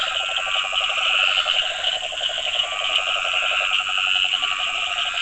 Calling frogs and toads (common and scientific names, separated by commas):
Dendropsophus nahdereri, yellow cururu toad (Rhinella icterica), Scinax perereca, Cochran's lime tree frog (Sphaenorhynchus surdus), Leptodactylus latrans